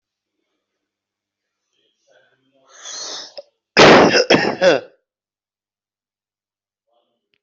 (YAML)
expert_labels:
- quality: ok
  cough_type: dry
  dyspnea: false
  wheezing: false
  stridor: true
  choking: false
  congestion: false
  nothing: false
  diagnosis: obstructive lung disease
  severity: mild
age: 42
gender: female
respiratory_condition: true
fever_muscle_pain: false
status: healthy